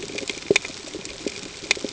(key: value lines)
label: ambient
recorder: HydroMoth